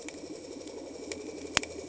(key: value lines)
label: anthrophony, boat engine
recorder: HydroMoth